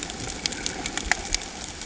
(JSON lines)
{"label": "ambient", "recorder": "HydroMoth"}